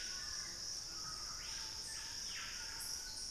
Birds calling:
Dusky-throated Antshrike (Thamnomanes ardesiacus)
Screaming Piha (Lipaugus vociferans)
White-throated Toucan (Ramphastos tucanus)

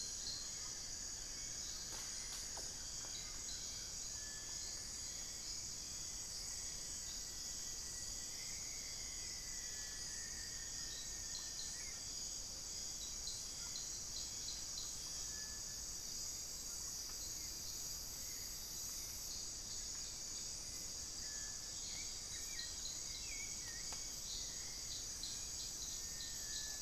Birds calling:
Hauxwell's Thrush (Turdus hauxwelli)
Rufous-fronted Antthrush (Formicarius rufifrons)

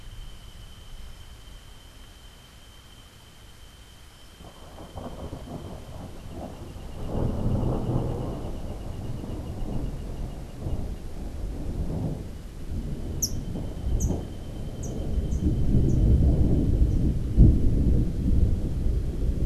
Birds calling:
Yellow Warbler (Setophaga petechia)

